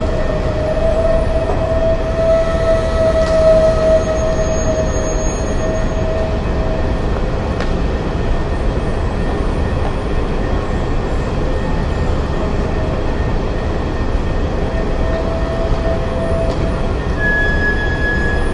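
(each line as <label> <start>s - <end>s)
A train is accelerating or decelerating. 0.0s - 7.6s
Background noise at a train station. 0.0s - 18.5s
A train is accelerating or decelerating. 17.1s - 18.5s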